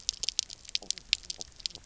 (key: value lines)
label: biophony, knock croak
recorder: SoundTrap 300